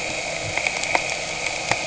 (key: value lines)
label: anthrophony, boat engine
recorder: HydroMoth